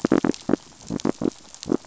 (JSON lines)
{"label": "biophony", "recorder": "SoundTrap 500"}